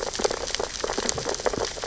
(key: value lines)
label: biophony, sea urchins (Echinidae)
recorder: SoundTrap 600 or HydroMoth